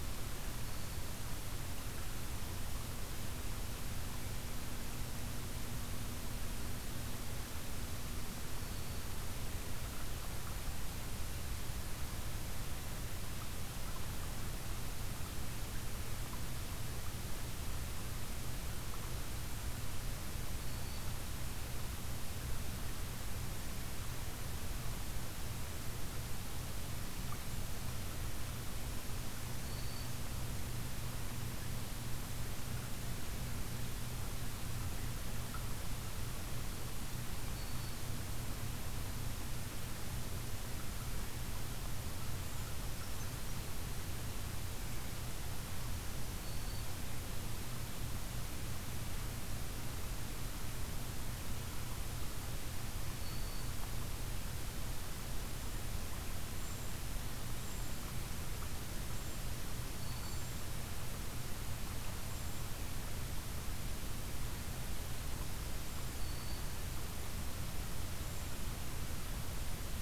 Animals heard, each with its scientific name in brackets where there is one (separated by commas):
Black-throated Green Warbler (Setophaga virens), Brown Creeper (Certhia americana)